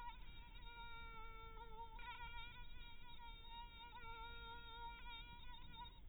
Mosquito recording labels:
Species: mosquito; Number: one; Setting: cup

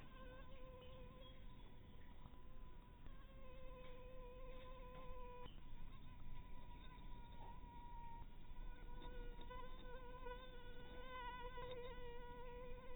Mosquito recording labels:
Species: Anopheles harrisoni; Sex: female; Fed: unfed; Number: one; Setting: cup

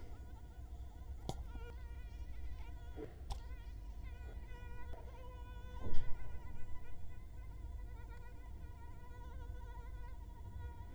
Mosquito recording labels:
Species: Culex quinquefasciatus; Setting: cup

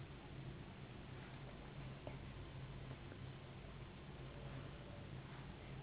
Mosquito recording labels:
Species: Anopheles gambiae s.s.; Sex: female; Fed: unfed; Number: one; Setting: insect culture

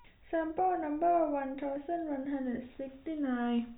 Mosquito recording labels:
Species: no mosquito; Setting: cup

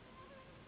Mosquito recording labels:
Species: Anopheles gambiae s.s.; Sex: female; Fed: unfed; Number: one; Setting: insect culture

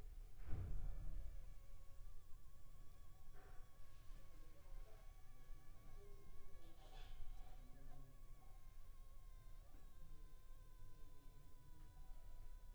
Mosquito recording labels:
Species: Anopheles funestus s.s.; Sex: female; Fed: unfed; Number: one; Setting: cup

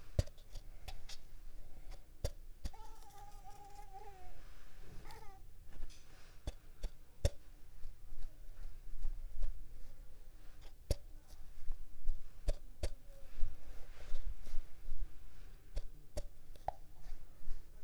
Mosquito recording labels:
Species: Mansonia uniformis; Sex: female; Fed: unfed; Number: one; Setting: cup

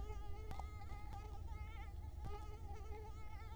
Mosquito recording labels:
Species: Culex quinquefasciatus; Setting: cup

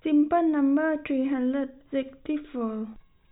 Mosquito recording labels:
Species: no mosquito; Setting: cup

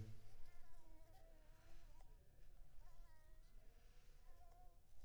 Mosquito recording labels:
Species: Anopheles coustani; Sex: female; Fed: blood-fed; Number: one; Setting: cup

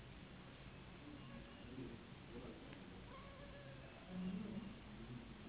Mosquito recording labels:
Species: Anopheles gambiae s.s.; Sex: female; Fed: unfed; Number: one; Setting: insect culture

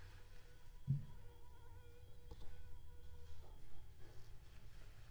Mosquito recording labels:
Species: Aedes aegypti; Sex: female; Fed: unfed; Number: one; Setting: cup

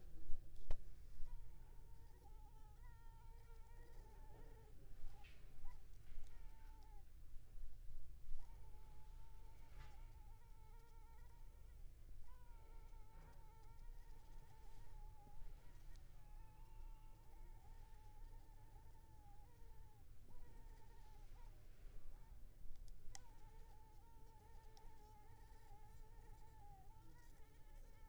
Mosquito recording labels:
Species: Culex pipiens complex; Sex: female; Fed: unfed; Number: one; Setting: cup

